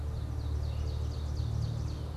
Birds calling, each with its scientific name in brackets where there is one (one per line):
Red-eyed Vireo (Vireo olivaceus)
Ovenbird (Seiurus aurocapilla)